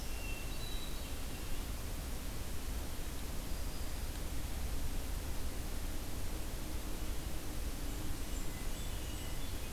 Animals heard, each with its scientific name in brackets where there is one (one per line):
Hermit Thrush (Catharus guttatus)
Black-throated Green Warbler (Setophaga virens)
Blackburnian Warbler (Setophaga fusca)